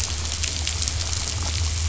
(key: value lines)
label: anthrophony, boat engine
recorder: SoundTrap 500